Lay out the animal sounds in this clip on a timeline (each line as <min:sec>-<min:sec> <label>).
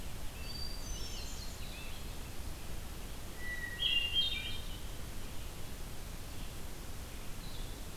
0:00.0-0:02.4 Scarlet Tanager (Piranga olivacea)
0:00.0-0:08.0 Red-eyed Vireo (Vireo olivaceus)
0:00.3-0:01.8 Hermit Thrush (Catharus guttatus)
0:03.3-0:04.8 Hermit Thrush (Catharus guttatus)